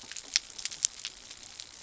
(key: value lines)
label: anthrophony, boat engine
recorder: SoundTrap 300